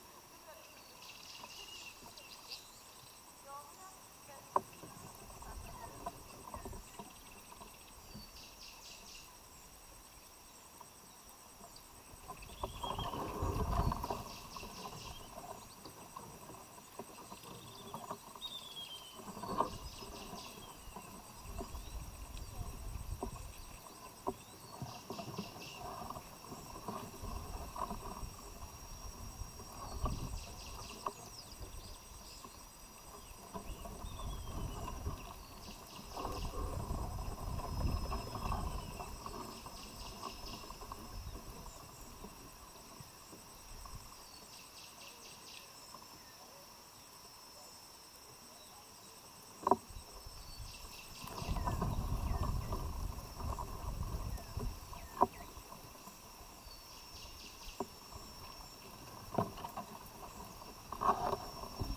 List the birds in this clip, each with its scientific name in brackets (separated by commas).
Spectacled Weaver (Ploceus ocularis)